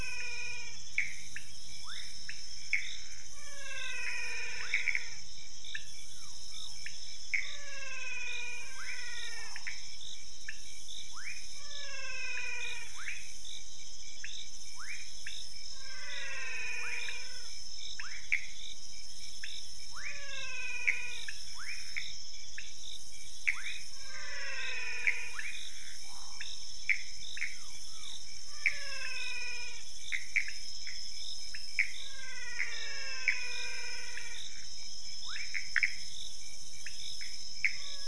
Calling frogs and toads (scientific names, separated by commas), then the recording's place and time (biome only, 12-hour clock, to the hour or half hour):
Physalaemus albonotatus, Leptodactylus fuscus, Pithecopus azureus, Leptodactylus podicipinus
Cerrado, midnight